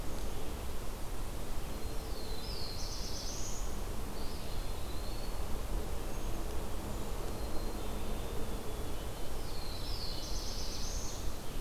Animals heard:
Black-capped Chickadee (Poecile atricapillus), Eastern Wood-Pewee (Contopus virens), Black-throated Blue Warbler (Setophaga caerulescens)

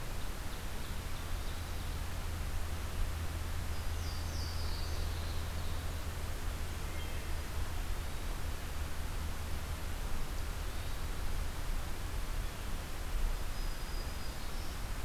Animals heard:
Wood Thrush (Hylocichla mustelina), Black-throated Green Warbler (Setophaga virens), Louisiana Waterthrush (Parkesia motacilla), Hermit Thrush (Catharus guttatus), Ovenbird (Seiurus aurocapilla)

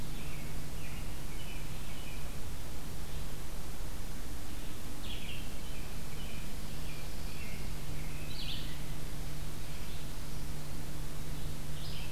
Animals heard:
Red-eyed Vireo (Vireo olivaceus), American Robin (Turdus migratorius)

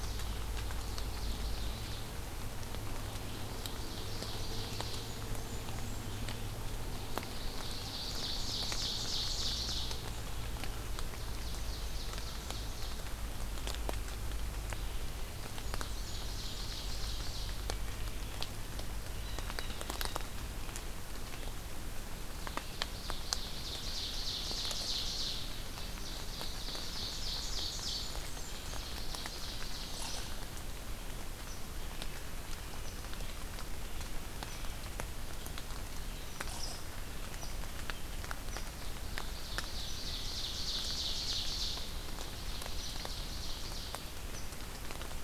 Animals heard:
Wood Thrush (Hylocichla mustelina), Eastern Chipmunk (Tamias striatus), Red-eyed Vireo (Vireo olivaceus), Blue Jay (Cyanocitta cristata), Blackburnian Warbler (Setophaga fusca), Ovenbird (Seiurus aurocapilla)

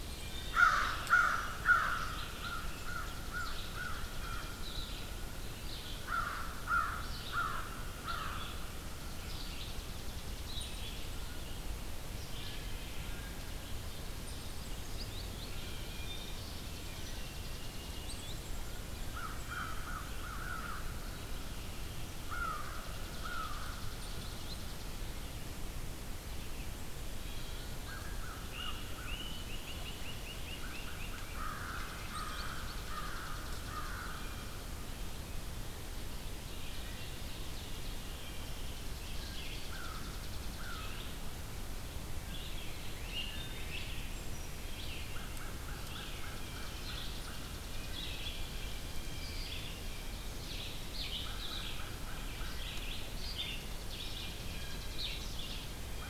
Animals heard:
Great Crested Flycatcher (Myiarchus crinitus), American Crow (Corvus brachyrhynchos), Ovenbird (Seiurus aurocapilla), Red-eyed Vireo (Vireo olivaceus), Chipping Sparrow (Spizella passerina), Blue Jay (Cyanocitta cristata), Wood Thrush (Hylocichla mustelina), unidentified call

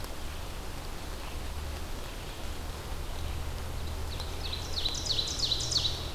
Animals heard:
Ovenbird (Seiurus aurocapilla)

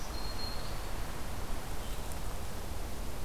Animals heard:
Black-throated Green Warbler (Setophaga virens), Blue-headed Vireo (Vireo solitarius)

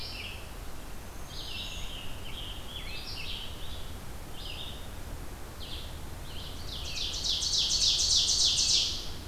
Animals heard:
Red-eyed Vireo (Vireo olivaceus), Ovenbird (Seiurus aurocapilla), Scarlet Tanager (Piranga olivacea), Black-throated Green Warbler (Setophaga virens)

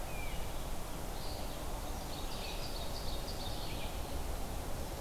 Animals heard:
Great Crested Flycatcher (Myiarchus crinitus), Ovenbird (Seiurus aurocapilla), Red-eyed Vireo (Vireo olivaceus)

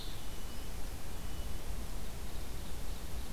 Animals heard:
Red-breasted Nuthatch (Sitta canadensis), Ovenbird (Seiurus aurocapilla)

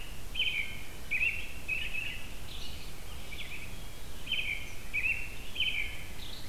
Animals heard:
Red-eyed Vireo (Vireo olivaceus), American Robin (Turdus migratorius)

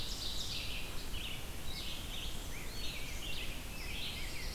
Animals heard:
Eastern Wood-Pewee (Contopus virens), Ovenbird (Seiurus aurocapilla), Black-throated Blue Warbler (Setophaga caerulescens), Red-eyed Vireo (Vireo olivaceus), Black-and-white Warbler (Mniotilta varia), Rose-breasted Grosbeak (Pheucticus ludovicianus)

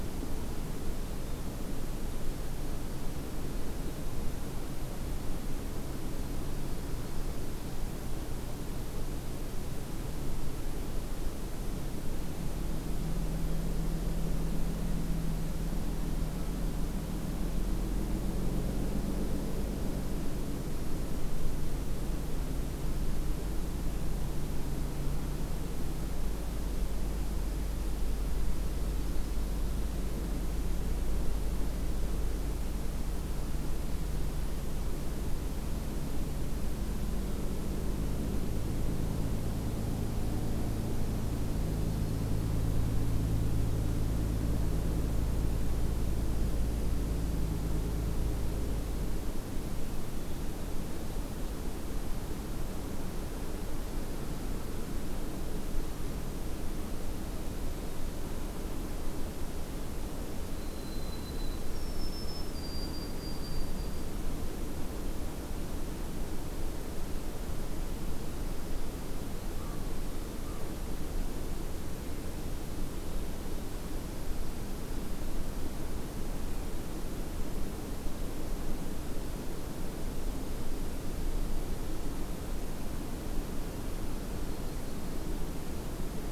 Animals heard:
White-throated Sparrow (Zonotrichia albicollis), American Crow (Corvus brachyrhynchos)

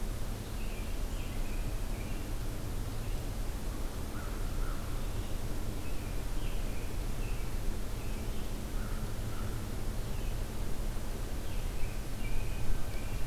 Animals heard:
Red-eyed Vireo (Vireo olivaceus), American Crow (Corvus brachyrhynchos), American Robin (Turdus migratorius)

